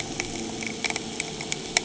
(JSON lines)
{"label": "anthrophony, boat engine", "recorder": "HydroMoth"}